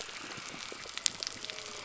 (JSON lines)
{"label": "biophony", "recorder": "SoundTrap 300"}